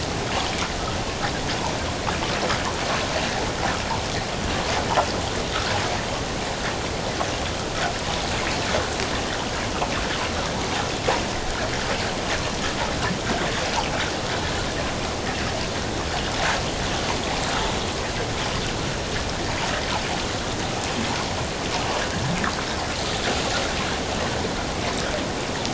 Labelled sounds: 22.0	22.3	water noise, 1.4 to 1.9 kHz

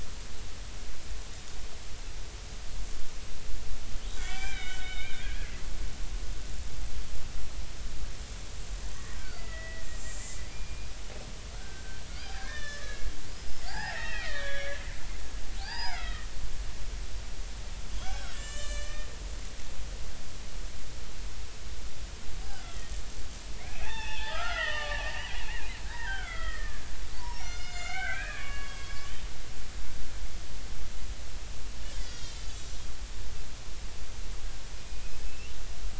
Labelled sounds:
4.0	5.5	killer whale, Bigg's (transient), 1.3 to 4.0 kHz
9.1	10.2	killer whale, Bigg's (transient), 1.3 to 7.5 kHz
10.5	10.9	killer whale, Bigg's (transient), 2.1 to 2.5 kHz
11.5	13.1	killer whale, Bigg's (transient), 1.1 to 6.1 kHz
13.3	14.8	killer whale, Bigg's (transient), 0.80 to 5.8 kHz
15.6	16.3	killer whale, Bigg's (transient), 0.80 to 5.2 kHz
18.0	19.1	killer whale, Bigg's (transient), 1.1 to 7.6 kHz
22.6	22.9	killer whale, Bigg's (transient), 1.8 to 3.5 kHz
23.6	25.4	killer whale, Bigg's (transient), 0.80 to 5.1 kHz
25.8	29.1	killer whale, Bigg's (transient), 0.90 to 7.2 kHz
32.0	32.8	killer whale, Bigg's (transient), 1.3 to 6.0 kHz
34.8	35.6	killer whale, Bigg's (transient), 2.4 to 5.2 kHz

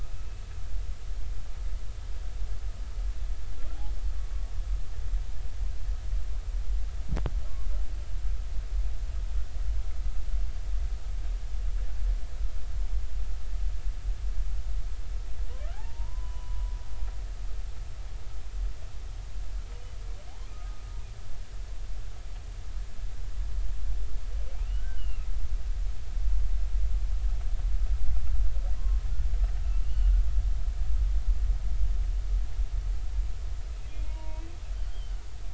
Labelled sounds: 4.2	4.4	humpback whale, 1.1 to 1.2 kHz
15.7	16.7	humpback whale, 0.80 to 3.0 kHz
20.5	20.8	humpback whale, 1.2 to 1.3 kHz
24.7	25.3	humpback whale, 1.4 to 3.0 kHz
28.8	29.0	humpback whale, 0.96 to 1.1 kHz
29.8	30.1	humpback whale, 2.7 to 3.0 kHz
34.0	34.5	humpback whale, 0.90 to 2.7 kHz
34.9	35.2	humpback whale, 2.8 to 3.3 kHz

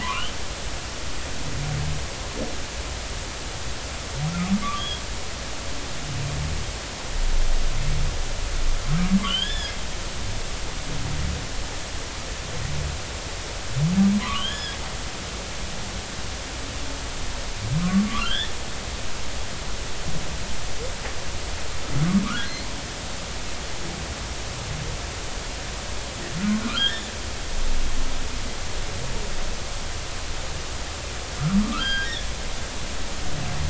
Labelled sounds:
0.0	0.3	humpback whale, 0.90 to 3.2 kHz
4.6	5.0	humpback whale, 1.1 to 3.4 kHz
9.2	9.7	humpback whale, 0.99 to 3.6 kHz
14.2	14.8	humpback whale, 0.96 to 5.2 kHz
18.1	18.5	humpback whale, 0.99 to 3.7 kHz
22.2	22.5	humpback whale, 1.1 to 1.7 kHz
26.7	27.1	humpback whale, 2.8 to 3.7 kHz
27.7	28.1	humpback whale, 1.1 to 1.9 kHz
31.3	32.3	humpback whale, 1.1 to 4.9 kHz

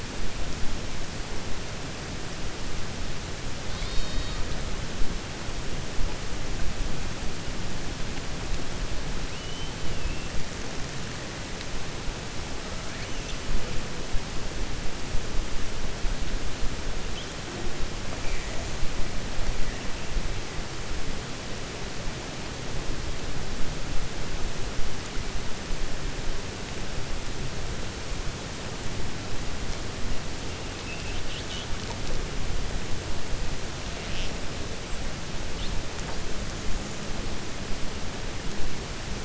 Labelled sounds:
9.3	9.7	killer whale, 2.6 to 3.2 kHz

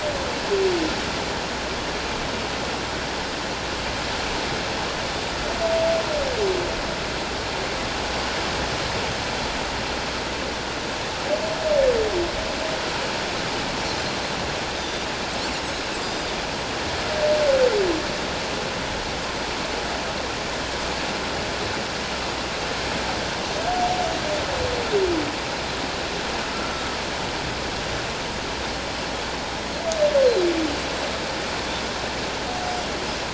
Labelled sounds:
14.7	15.1	Pacific white-sided dolphin, 3.5 to 6.1 kHz
16.0	16.3	Pacific white-sided dolphin, 4.8 to 7.4 kHz
26.7	27.0	humpback whale, 1.2 to 1.4 kHz
30.2	30.5	Pacific white-sided dolphin, 3.8 to 4.4 kHz

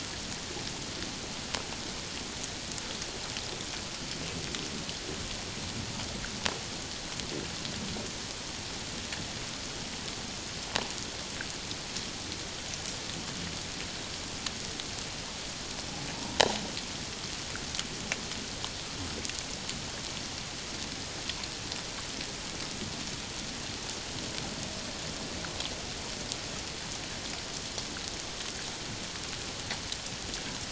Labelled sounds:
16.1	16.4	humpback whale, 0.88 to 1.0 kHz

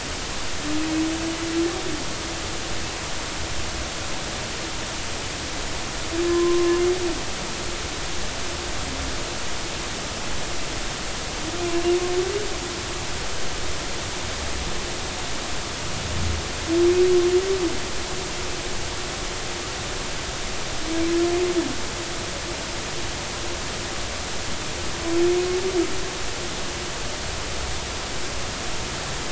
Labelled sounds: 6.3	6.8	humpback whale, 0.93 to 1.1 kHz

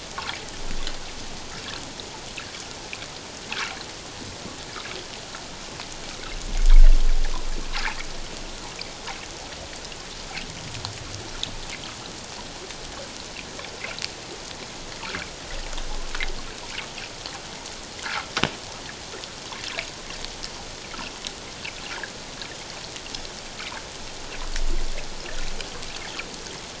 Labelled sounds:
18.0	18.3	water noise, 1.0 to 1.8 kHz

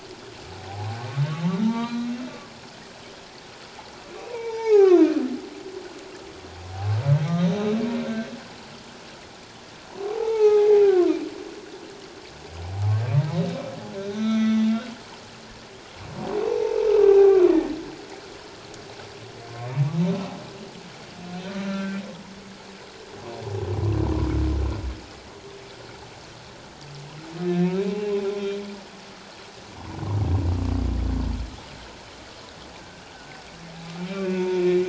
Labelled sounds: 0.7	2.1	humpback whale, 0.78 to 4.1 kHz
4.3	5.0	humpback whale, 0.78 to 3.7 kHz
7.3	7.8	humpback whale, 3.6 to 3.9 kHz
10.0	11.1	humpback whale, 0.78 to 2.7 kHz
14.0	14.7	humpback whale, 1.3 to 6.0 kHz
16.4	17.8	humpback whale, 0.78 to 1.9 kHz
21.7	22.0	humpback whale, 1.3 to 1.6 kHz
27.4	27.8	humpback whale, 1.7 to 2.6 kHz
33.1	33.4	humpback whale, 1.3 to 1.6 kHz
34.0	34.8	humpback whale, 0.88 to 2.7 kHz

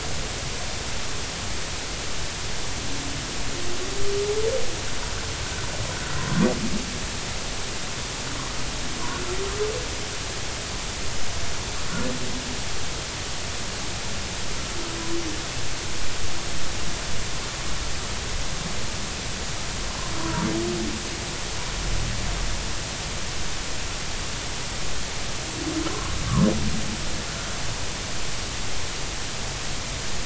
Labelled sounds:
20.2	20.4	humpback whale, 0.90 to 1.1 kHz
25.9	26.1	humpback whale, 0.99 to 1.2 kHz

